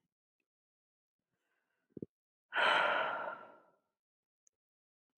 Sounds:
Sigh